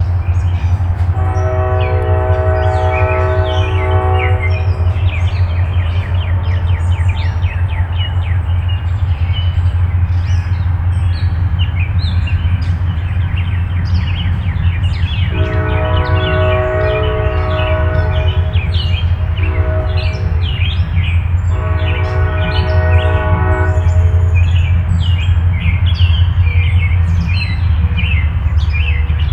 Is there a train?
yes